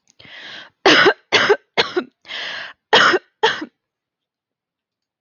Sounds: Cough